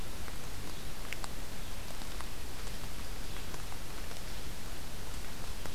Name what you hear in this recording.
Red-eyed Vireo